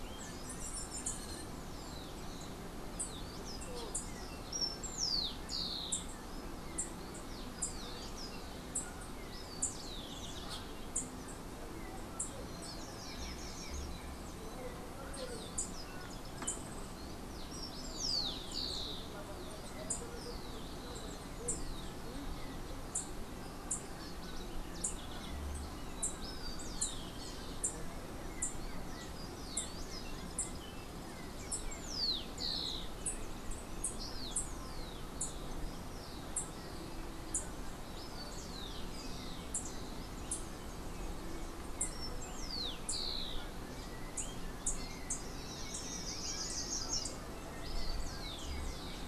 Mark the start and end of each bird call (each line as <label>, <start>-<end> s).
Rufous-collared Sparrow (Zonotrichia capensis), 4.2-6.3 s
Rufous-collared Sparrow (Zonotrichia capensis), 7.1-11.1 s
Slate-throated Redstart (Myioborus miniatus), 12.4-14.0 s
Rufous-collared Sparrow (Zonotrichia capensis), 17.2-19.2 s
unidentified bird, 19.8-31.7 s
Rufous-collared Sparrow (Zonotrichia capensis), 25.9-27.7 s
Yellow-backed Oriole (Icterus chrysater), 28.2-32.7 s
Rufous-collared Sparrow (Zonotrichia capensis), 31.3-32.7 s
Rufous-collared Sparrow (Zonotrichia capensis), 37.9-43.8 s
Slate-throated Redstart (Myioborus miniatus), 45.3-47.4 s
Rufous-collared Sparrow (Zonotrichia capensis), 47.6-49.0 s